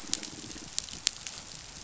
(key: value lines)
label: biophony, pulse
recorder: SoundTrap 500